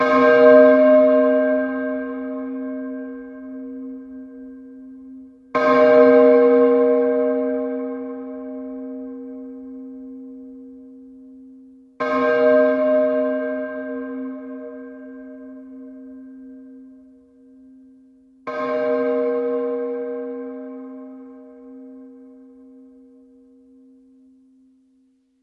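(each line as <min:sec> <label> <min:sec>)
0:00.0 A bell rings. 0:03.2
0:05.4 A bell rings. 0:08.8
0:11.9 A bell rings. 0:14.5
0:18.3 A bell rings. 0:22.1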